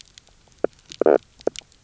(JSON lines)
{"label": "biophony, knock croak", "recorder": "SoundTrap 300"}